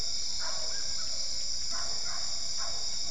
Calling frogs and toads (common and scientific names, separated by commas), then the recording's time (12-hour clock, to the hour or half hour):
Physalaemus cuvieri
9pm